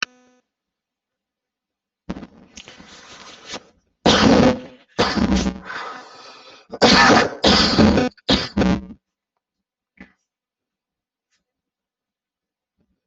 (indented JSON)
{
  "expert_labels": [
    {
      "quality": "poor",
      "cough_type": "wet",
      "dyspnea": false,
      "wheezing": false,
      "stridor": false,
      "choking": false,
      "congestion": false,
      "nothing": true,
      "diagnosis": "lower respiratory tract infection",
      "severity": "severe"
    }
  ],
  "age": 23,
  "gender": "female",
  "respiratory_condition": false,
  "fever_muscle_pain": false,
  "status": "COVID-19"
}